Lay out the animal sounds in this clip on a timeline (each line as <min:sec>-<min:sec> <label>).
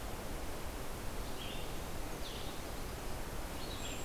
0:00.0-0:04.0 Red-eyed Vireo (Vireo olivaceus)